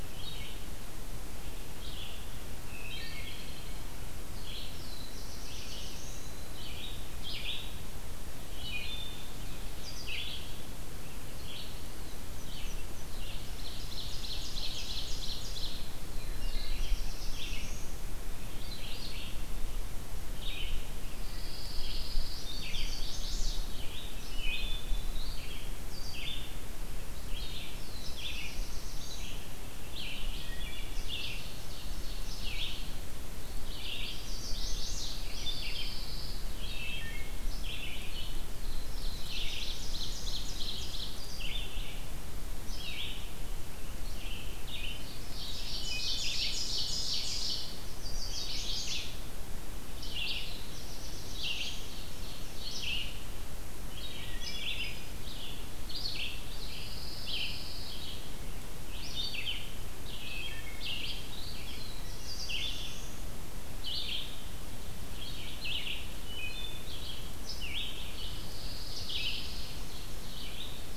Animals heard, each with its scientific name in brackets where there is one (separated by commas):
Eastern Wood-Pewee (Contopus virens), Red-eyed Vireo (Vireo olivaceus), Black-throated Blue Warbler (Setophaga caerulescens), Ovenbird (Seiurus aurocapilla), Wood Thrush (Hylocichla mustelina), Chestnut-sided Warbler (Setophaga pensylvanica), Pine Warbler (Setophaga pinus), Black-and-white Warbler (Mniotilta varia)